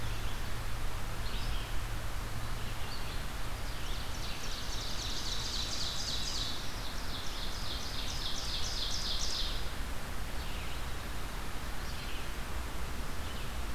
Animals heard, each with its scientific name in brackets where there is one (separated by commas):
Red-eyed Vireo (Vireo olivaceus), Ovenbird (Seiurus aurocapilla)